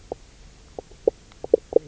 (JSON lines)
{"label": "biophony, knock croak", "recorder": "SoundTrap 300"}